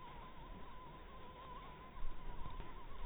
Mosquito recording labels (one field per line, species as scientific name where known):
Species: Anopheles harrisoni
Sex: female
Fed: blood-fed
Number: one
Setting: cup